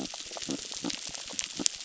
{"label": "biophony, crackle", "recorder": "SoundTrap 600"}
{"label": "biophony", "recorder": "SoundTrap 600"}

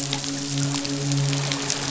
{"label": "biophony, midshipman", "recorder": "SoundTrap 500"}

